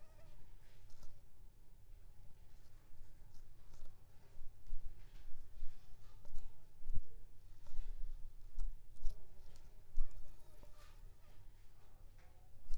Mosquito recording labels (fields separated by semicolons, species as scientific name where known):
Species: Anopheles funestus s.s.; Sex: female; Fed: unfed; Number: one; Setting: cup